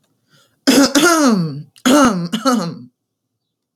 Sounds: Throat clearing